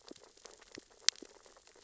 {"label": "biophony, sea urchins (Echinidae)", "recorder": "SoundTrap 600 or HydroMoth"}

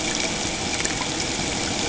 {"label": "ambient", "recorder": "HydroMoth"}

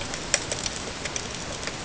{"label": "ambient", "recorder": "HydroMoth"}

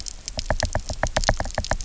{"label": "biophony, knock", "recorder": "SoundTrap 300"}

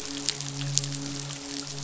{"label": "biophony, midshipman", "recorder": "SoundTrap 500"}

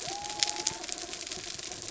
{"label": "biophony", "recorder": "SoundTrap 300"}
{"label": "anthrophony, mechanical", "recorder": "SoundTrap 300"}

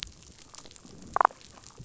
{"label": "biophony, damselfish", "recorder": "SoundTrap 500"}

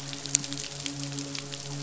{"label": "biophony, midshipman", "recorder": "SoundTrap 500"}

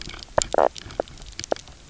{"label": "biophony, knock croak", "recorder": "SoundTrap 300"}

